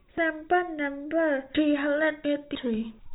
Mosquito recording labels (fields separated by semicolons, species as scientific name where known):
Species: no mosquito; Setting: cup